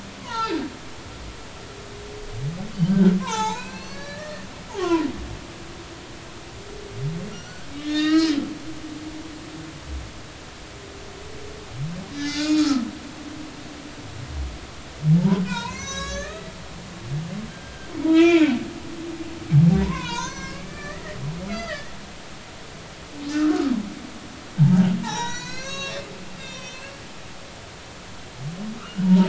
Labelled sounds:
0.2	0.6	humpback whale, 0.80 to 4.2 kHz
2.7	4.5	humpback whale, 0.80 to 7.5 kHz
4.8	5.0	humpback whale, 0.90 to 1.2 kHz
7.3	8.4	humpback whale, 1.2 to 7.0 kHz
12.2	12.9	humpback whale, 1.2 to 6.7 kHz
15.2	18.5	humpback whale, 0.86 to 7.9 kHz
19.8	21.9	humpback whale, 0.90 to 7.7 kHz
23.3	23.7	humpback whale, 1.2 to 1.6 kHz
25.0	26.9	humpback whale, 0.80 to 7.0 kHz
28.8	29.2	humpback whale, 0.86 to 3.0 kHz

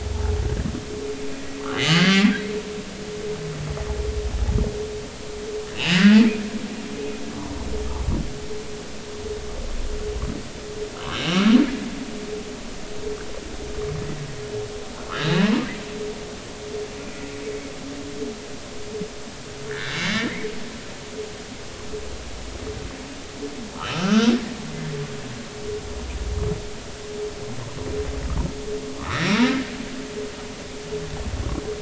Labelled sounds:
1.7	2.2	humpback whale, 2.0 to 3.1 kHz
5.7	6.2	humpback whale, 1.3 to 3.0 kHz
7.3	7.6	humpback whale, 0.93 to 1.2 kHz
11.1	11.5	humpback whale, 1.1 to 3.2 kHz
15.2	15.6	humpback whale, 0.83 to 4.1 kHz
19.7	20.5	humpback whale, 1.4 to 2.3 kHz
23.8	24.3	humpback whale, 0.86 to 2.7 kHz
29.0	29.4	humpback whale, 1.0 to 5.8 kHz

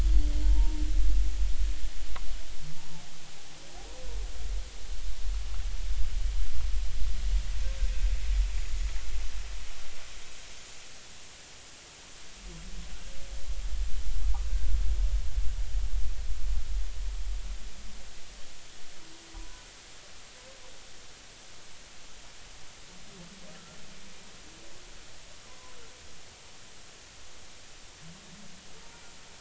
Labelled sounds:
0.4	0.8	humpback whale, 0.86 to 0.99 kHz
25.5	25.8	humpback whale, 0.96 to 1.2 kHz

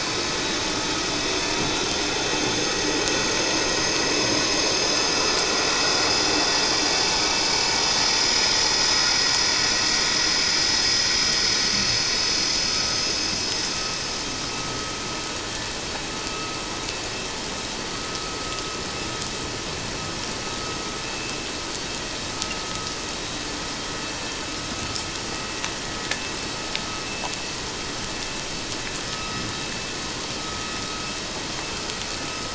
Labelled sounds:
29.1	29.4	vessel noise, 1.2 to 1.3 kHz

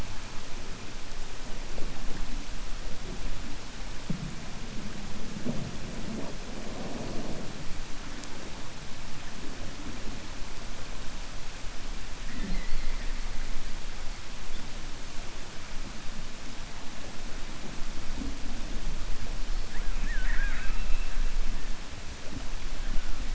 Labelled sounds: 19.9	21.1	killer whale, 0.97 to 3.1 kHz

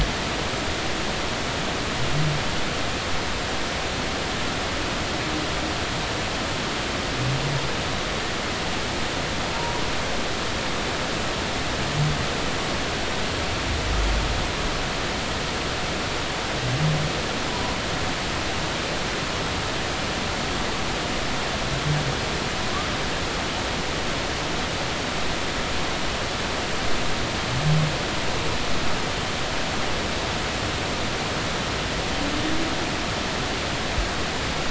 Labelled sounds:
9.5	9.8	humpback whale, 0.86 to 1.0 kHz

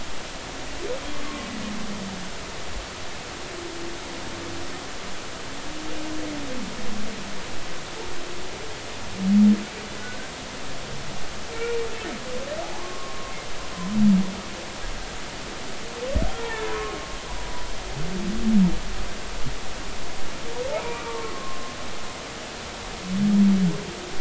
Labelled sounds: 1.2	1.5	humpback whale, 1.1 to 1.2 kHz
11.5	11.8	humpback whale, 2.2 to 2.5 kHz
12.7	13.3	humpback whale, 0.96 to 1.1 kHz
16.4	17.0	humpback whale, 0.83 to 1.9 kHz
20.7	21.2	humpback whale, 0.83 to 2.5 kHz
21.9	22.6	humpback whale, 1.0 to 1.2 kHz

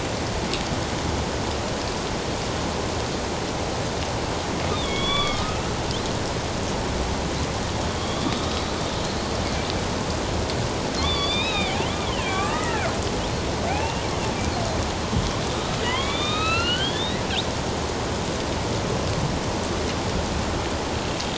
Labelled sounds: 4.7	5.7	killer whale, northern resident, A clan, AB subclan, 1.1 to 4.8 kHz
8.0	8.6	killer whale, northern resident, A clan, AB subclan, 3.2 to 3.9 kHz
11.0	11.8	killer whale, northern resident, A clan, AB subclan, 1.0 to 5.2 kHz
12.2	13.0	killer whale, northern resident, A clan, AB subclan, 1.1 to 2.6 kHz
13.7	14.0	killer whale, northern resident, A clan, AB subclan, 0.78 to 2.8 kHz
15.8	17.2	killer whale, northern resident, A clan, AB subclan, 0.94 to 4.7 kHz

